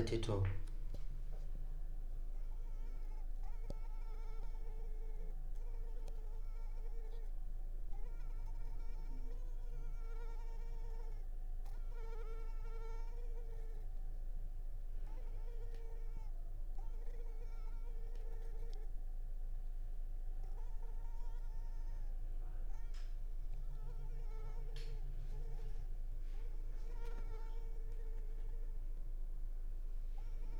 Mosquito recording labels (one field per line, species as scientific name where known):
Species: Culex pipiens complex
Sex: female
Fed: unfed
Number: one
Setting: cup